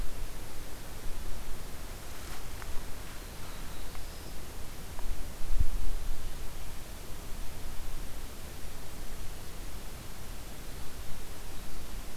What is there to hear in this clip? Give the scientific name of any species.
Setophaga caerulescens